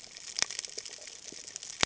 {"label": "ambient", "recorder": "HydroMoth"}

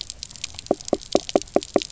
{"label": "biophony, knock croak", "recorder": "SoundTrap 300"}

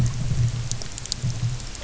{"label": "anthrophony, boat engine", "recorder": "SoundTrap 300"}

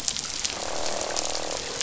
{"label": "biophony, croak", "recorder": "SoundTrap 500"}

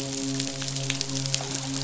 {"label": "biophony, midshipman", "recorder": "SoundTrap 500"}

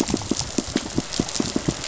{"label": "biophony, pulse", "recorder": "SoundTrap 500"}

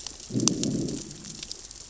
{"label": "biophony, growl", "recorder": "SoundTrap 600 or HydroMoth"}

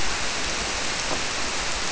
{"label": "biophony", "recorder": "SoundTrap 300"}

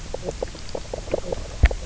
{"label": "biophony, knock croak", "recorder": "SoundTrap 300"}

